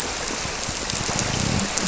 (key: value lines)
label: biophony
recorder: SoundTrap 300